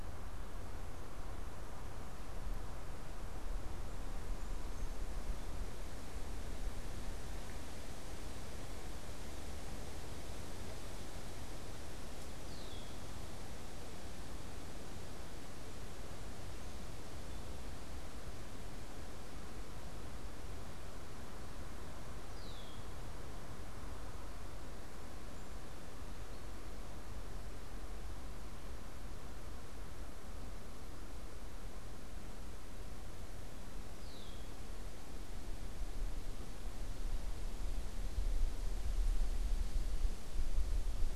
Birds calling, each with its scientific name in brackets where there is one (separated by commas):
Red-winged Blackbird (Agelaius phoeniceus)